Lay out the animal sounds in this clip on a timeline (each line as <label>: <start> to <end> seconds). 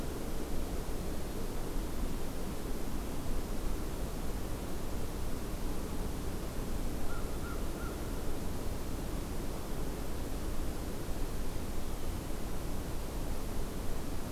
American Crow (Corvus brachyrhynchos): 7.0 to 8.0 seconds